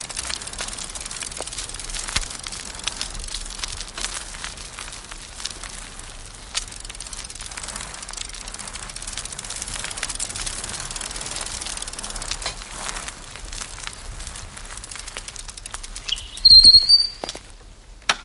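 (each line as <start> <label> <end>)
0.0 A bike is being pushed, creating a clicking or ratcheting sound. 18.2
16.1 A sharp, high-pitched whistle. 17.4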